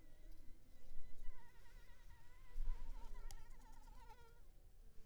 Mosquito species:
Anopheles arabiensis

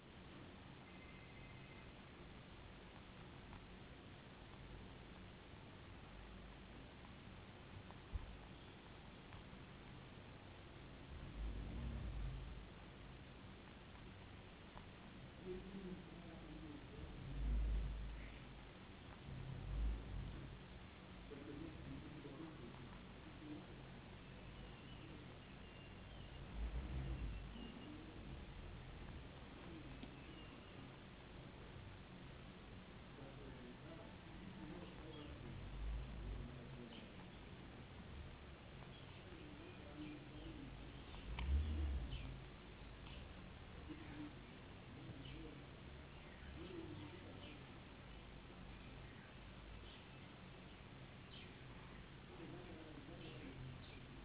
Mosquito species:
no mosquito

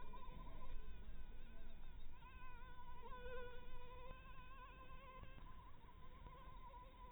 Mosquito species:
Anopheles maculatus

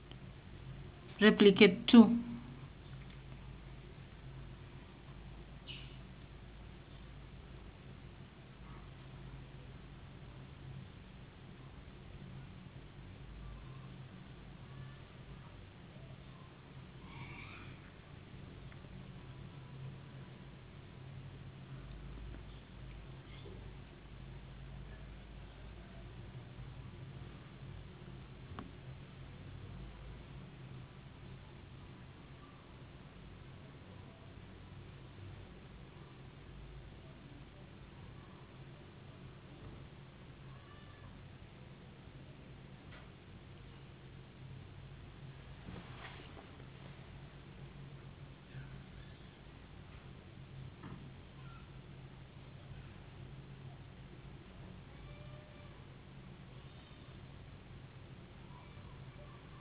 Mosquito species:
no mosquito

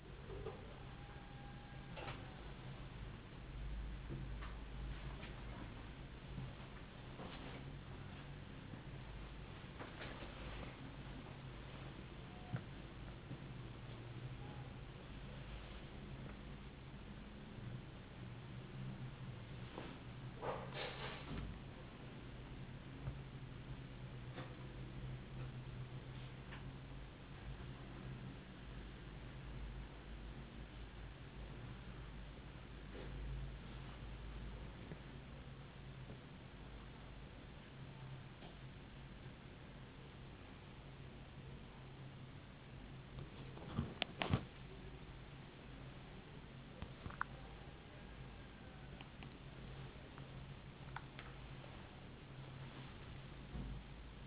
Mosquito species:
no mosquito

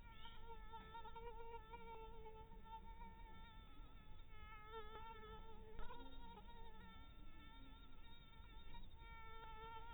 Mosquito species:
Anopheles dirus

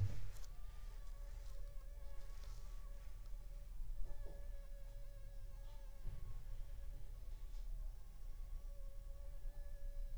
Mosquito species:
Anopheles funestus s.s.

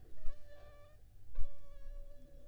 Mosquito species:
Anopheles funestus s.s.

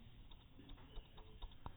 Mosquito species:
no mosquito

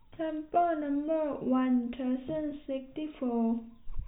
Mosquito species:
no mosquito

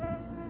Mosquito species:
Culex tarsalis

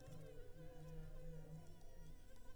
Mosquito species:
Anopheles arabiensis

